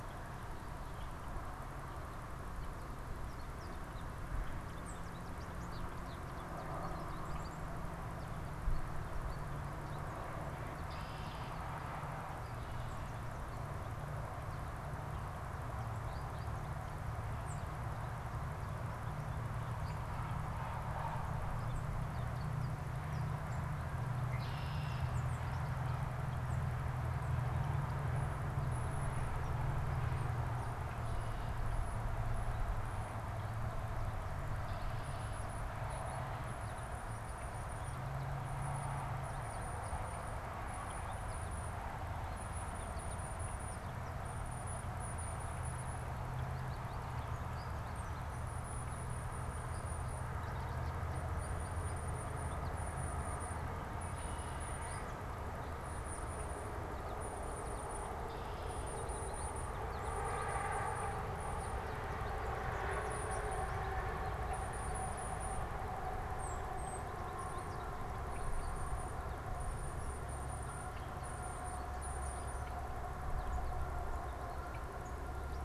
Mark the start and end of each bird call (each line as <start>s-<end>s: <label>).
0.0s-28.4s: American Goldfinch (Spinus tristis)
4.7s-5.1s: Tufted Titmouse (Baeolophus bicolor)
10.4s-11.8s: Red-winged Blackbird (Agelaius phoeniceus)
17.3s-17.7s: Tufted Titmouse (Baeolophus bicolor)
24.1s-25.4s: Red-winged Blackbird (Agelaius phoeniceus)
25.0s-25.6s: Tufted Titmouse (Baeolophus bicolor)
26.4s-26.7s: Tufted Titmouse (Baeolophus bicolor)
34.6s-75.6s: American Goldfinch (Spinus tristis)
34.9s-73.1s: Tufted Titmouse (Baeolophus bicolor)